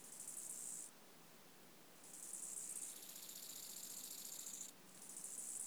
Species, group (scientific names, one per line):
Chorthippus eisentrauti
Orthoptera